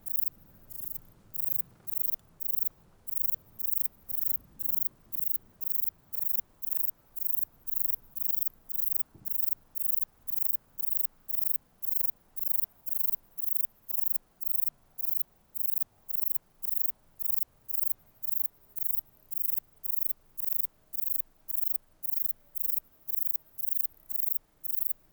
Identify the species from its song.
Platycleis grisea